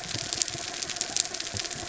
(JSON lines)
{"label": "anthrophony, mechanical", "recorder": "SoundTrap 300"}
{"label": "biophony", "recorder": "SoundTrap 300"}